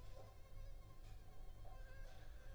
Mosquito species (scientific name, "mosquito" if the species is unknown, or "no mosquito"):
Anopheles arabiensis